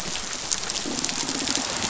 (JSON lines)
{"label": "biophony", "recorder": "SoundTrap 500"}